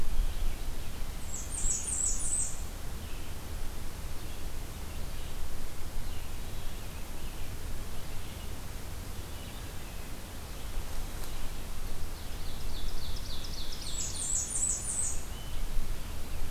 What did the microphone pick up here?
Red-eyed Vireo, Blackburnian Warbler, Ovenbird